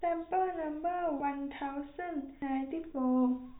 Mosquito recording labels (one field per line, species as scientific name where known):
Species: no mosquito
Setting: cup